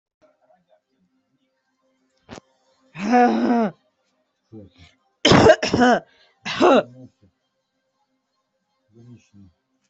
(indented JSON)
{
  "expert_labels": [
    {
      "quality": "good",
      "cough_type": "unknown",
      "dyspnea": false,
      "wheezing": false,
      "stridor": false,
      "choking": false,
      "congestion": false,
      "nothing": true,
      "diagnosis": "upper respiratory tract infection",
      "severity": "mild"
    }
  ],
  "gender": "female",
  "respiratory_condition": true,
  "fever_muscle_pain": true,
  "status": "symptomatic"
}